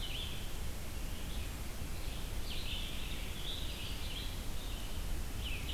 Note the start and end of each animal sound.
[0.00, 0.69] Eastern Wood-Pewee (Contopus virens)
[0.00, 5.73] Red-eyed Vireo (Vireo olivaceus)
[2.10, 4.46] Scarlet Tanager (Piranga olivacea)

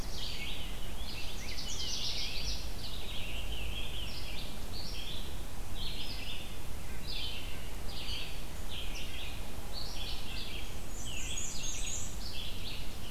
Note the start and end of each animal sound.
[0.00, 0.54] Black-throated Blue Warbler (Setophaga caerulescens)
[0.00, 4.62] Rose-breasted Grosbeak (Pheucticus ludovicianus)
[0.00, 13.11] Red-eyed Vireo (Vireo olivaceus)
[1.22, 2.73] Canada Warbler (Cardellina canadensis)
[6.05, 13.11] Red-breasted Nuthatch (Sitta canadensis)
[10.74, 12.16] Black-and-white Warbler (Mniotilta varia)
[12.60, 13.11] Black-throated Blue Warbler (Setophaga caerulescens)

